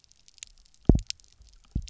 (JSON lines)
{"label": "biophony, double pulse", "recorder": "SoundTrap 300"}